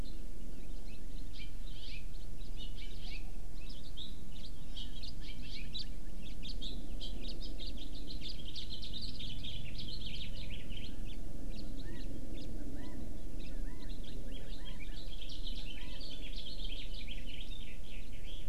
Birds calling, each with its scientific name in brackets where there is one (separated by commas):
House Finch (Haemorhous mexicanus), Hawaii Amakihi (Chlorodrepanis virens), Chinese Hwamei (Garrulax canorus)